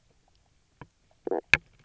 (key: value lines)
label: biophony, knock croak
recorder: SoundTrap 300